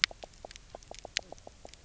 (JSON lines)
{"label": "biophony, knock croak", "recorder": "SoundTrap 300"}